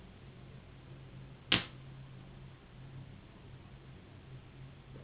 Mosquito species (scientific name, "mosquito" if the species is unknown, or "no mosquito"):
Anopheles gambiae s.s.